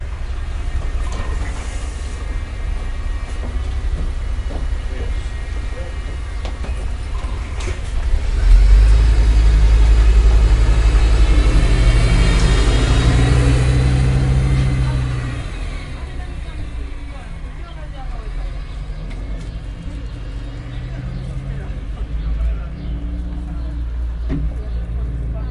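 0.0s Quiet clacking sounds in the background. 8.2s
0.0s Engine noises of a bus getting louder and then quieter. 25.5s
4.9s People are talking in the background. 8.0s
14.8s People are talking in the background. 25.5s
24.3s Quiet thump. 24.6s

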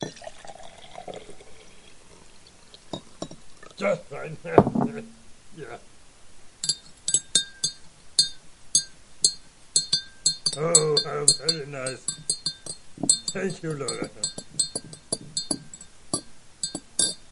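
0.0s A person is pouring water. 3.7s
3.7s A man laughs in a low, squeaky voice. 6.0s
4.5s A soft, muffled thud. 4.9s
6.6s A metal spoon stirs inside a glass. 17.3s
10.7s A man is speaking indistinctly in a low voice. 12.4s
13.2s A man is speaking indistinctly in a low voice. 14.5s

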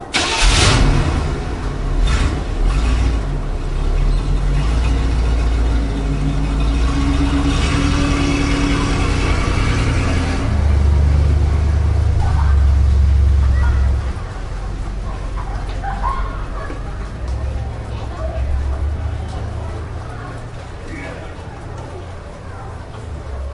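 0.0s A heavy crank and sputter are followed by a deep engine roar as a truck starts. 14.4s
12.2s A woman laughs faintly and repeatedly in the background. 23.5s
14.0s Soft crowd chatter in the background. 23.5s

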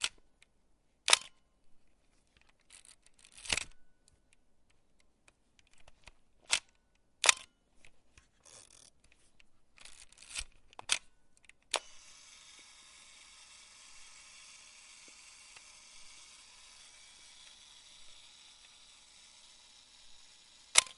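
0.0s A camera shutter clicks. 1.4s
3.4s A camera shutter clicks. 3.7s
6.4s A camera shutter clicks. 7.5s
10.3s A camera shutter clicks. 12.0s
11.9s Screeching sound. 20.7s
20.7s A camera shutter clicks. 21.0s

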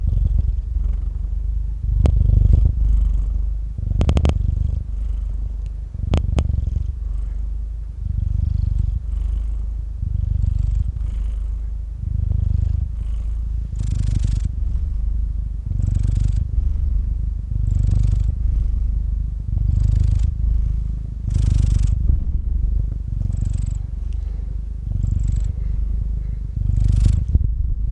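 0.0s A cat is purring softly. 1.1s
1.8s A cat is purring softly. 3.2s
3.8s A cat is purring softly. 4.8s
5.9s A cat is purring softly. 6.9s
8.1s A cat is purring softly. 9.1s
10.0s A cat is purring softly. 11.0s
12.0s A cat is purring softly. 12.9s
13.8s A cat is purring softly. 14.5s
15.7s A cat is purring intensely. 20.4s
21.3s A cat is purring intensely. 23.0s
23.1s A cat is purring softly. 23.8s
24.8s A cat is purring softly. 25.6s
26.6s A cat is purring softly. 27.9s

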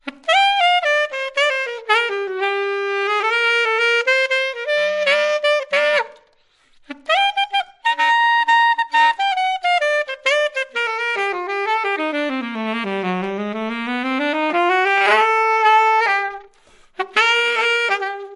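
0.0s A smooth jazz melody with varying rhythm is played on a saxophone. 18.4s

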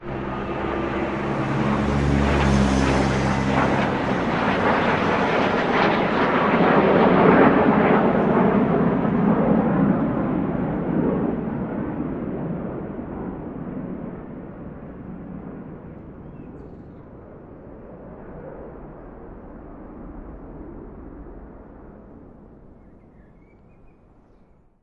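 0.0s Airplanes flying overhead outdoors. 24.8s
0.0s Birds chirping in the distance. 24.8s
22.0s A bird chirps faintly in the distance. 24.8s

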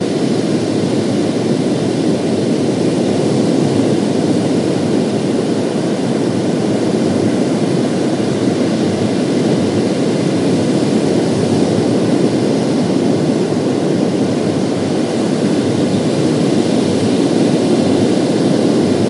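0.0s Water sounds with some wind. 19.1s

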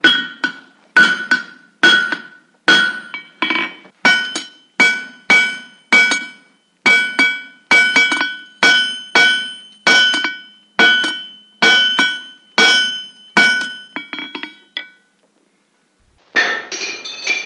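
0.0s An anvil is being hit with a hammer producing a distant, irregular pattern of sharp and weak resonant sounds. 14.9s
16.3s An anvil is being struck with a hammer, producing shattering sounds that diminish with irregular rhythms. 17.5s

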